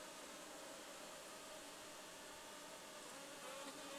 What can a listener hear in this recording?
insect buzz